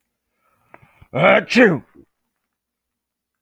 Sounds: Sneeze